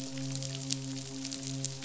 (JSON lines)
{"label": "biophony, midshipman", "recorder": "SoundTrap 500"}